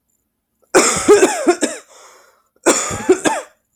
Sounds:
Cough